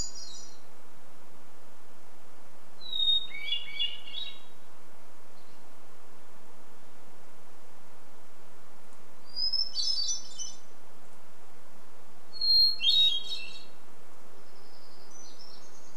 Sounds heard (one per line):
Hermit Thrush song
insect buzz
warbler song